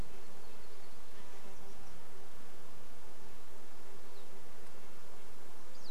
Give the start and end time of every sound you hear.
[0, 2] Chestnut-backed Chickadee call
[0, 2] Red-breasted Nuthatch song
[0, 2] warbler song
[0, 6] insect buzz
[4, 6] Pine Siskin call
[4, 6] Red-breasted Nuthatch song

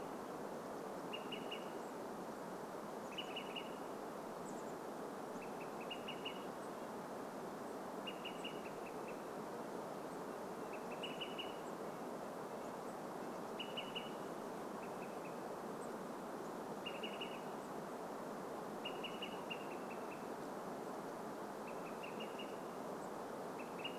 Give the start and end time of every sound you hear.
[0, 24] Olive-sided Flycatcher call
[4, 6] Chestnut-backed Chickadee call
[6, 8] Red-breasted Nuthatch song
[6, 18] unidentified bird chip note
[10, 14] Red-breasted Nuthatch song
[22, 24] unidentified bird chip note

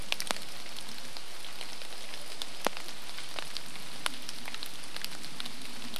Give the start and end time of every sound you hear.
[0, 6] airplane
[0, 6] rain

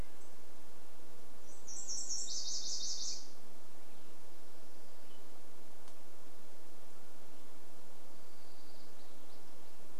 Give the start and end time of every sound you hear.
[0, 2] Chestnut-backed Chickadee call
[0, 4] Nashville Warbler song
[4, 6] unidentified sound
[6, 8] Mountain Quail call
[8, 10] warbler song

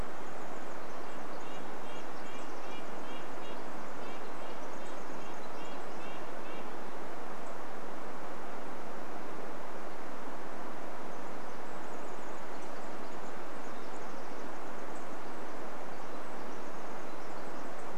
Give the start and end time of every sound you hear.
[0, 6] Pacific Wren song
[0, 8] Red-breasted Nuthatch song
[10, 18] Pacific Wren song

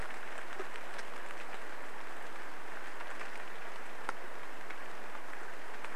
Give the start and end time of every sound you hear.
[0, 6] rain

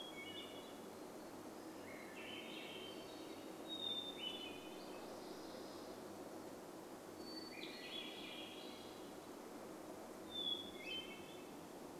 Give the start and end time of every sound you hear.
[0, 6] warbler song
[0, 12] Hermit Thrush song
[0, 12] vehicle engine
[2, 4] Swainson's Thrush song
[6, 10] Swainson's Thrush song
[10, 12] unidentified bird chip note

